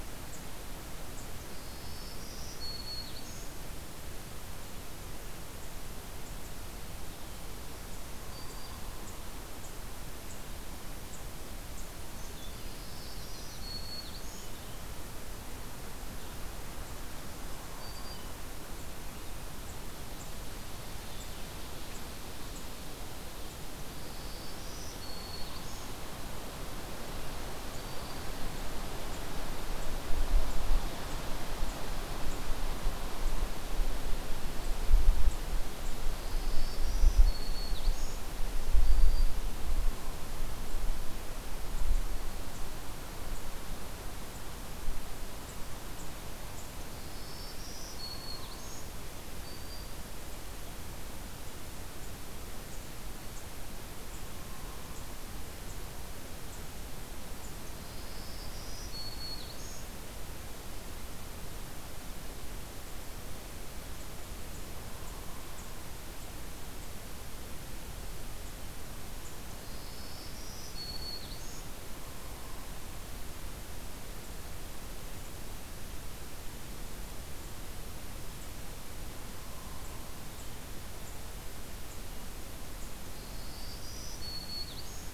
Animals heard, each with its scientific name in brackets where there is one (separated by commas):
Blue-headed Vireo (Vireo solitarius), Hairy Woodpecker (Dryobates villosus), Yellow-rumped Warbler (Setophaga coronata), Black-throated Green Warbler (Setophaga virens)